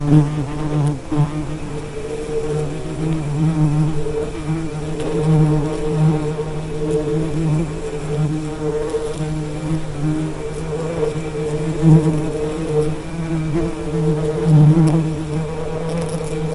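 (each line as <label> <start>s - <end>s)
Bee buzzing with varying volume. 0.0s - 16.5s
White noise. 0.0s - 16.5s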